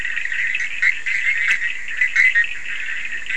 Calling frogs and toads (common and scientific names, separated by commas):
Bischoff's tree frog (Boana bischoffi), Cochran's lime tree frog (Sphaenorhynchus surdus)